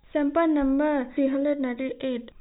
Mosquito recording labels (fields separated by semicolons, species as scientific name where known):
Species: no mosquito; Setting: cup